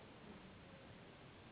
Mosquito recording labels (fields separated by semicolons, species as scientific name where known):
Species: Anopheles gambiae s.s.; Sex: female; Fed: unfed; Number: one; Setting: insect culture